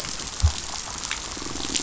{"label": "biophony", "recorder": "SoundTrap 500"}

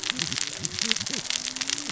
{"label": "biophony, cascading saw", "recorder": "SoundTrap 600 or HydroMoth"}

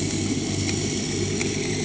{"label": "anthrophony, boat engine", "recorder": "HydroMoth"}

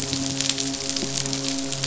{"label": "biophony, midshipman", "recorder": "SoundTrap 500"}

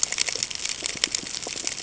{"label": "ambient", "recorder": "HydroMoth"}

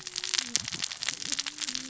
{"label": "biophony, cascading saw", "recorder": "SoundTrap 600 or HydroMoth"}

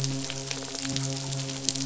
{"label": "biophony, midshipman", "recorder": "SoundTrap 500"}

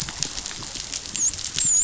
{"label": "biophony, dolphin", "recorder": "SoundTrap 500"}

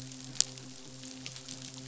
{"label": "biophony, midshipman", "recorder": "SoundTrap 500"}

